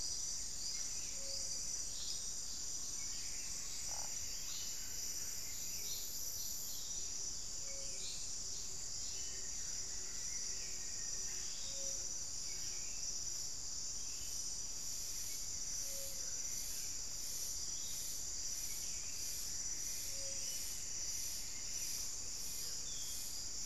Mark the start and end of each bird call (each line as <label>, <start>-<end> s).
Hauxwell's Thrush (Turdus hauxwelli), 0.0-2.3 s
Buff-throated Saltator (Saltator maximus), 0.0-23.7 s
Plumbeous Antbird (Myrmelastes hyperythrus), 2.9-5.7 s
Gilded Barbet (Capito auratus), 5.4-13.0 s
Black-faced Antthrush (Formicarius analis), 9.1-11.4 s
Solitary Black Cacique (Cacicus solitarius), 15.0-16.9 s
Plumbeous Antbird (Myrmelastes hyperythrus), 19.5-22.3 s